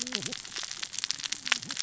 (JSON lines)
{"label": "biophony, cascading saw", "recorder": "SoundTrap 600 or HydroMoth"}